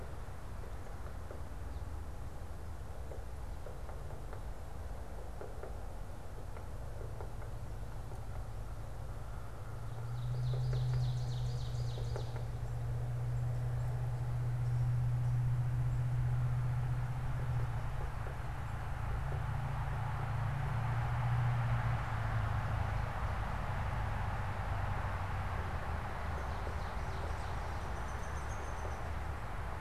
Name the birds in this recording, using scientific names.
Seiurus aurocapilla, Dryobates pubescens